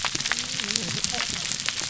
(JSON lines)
{"label": "biophony, whup", "recorder": "SoundTrap 300"}